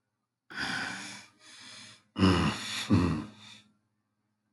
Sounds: Sigh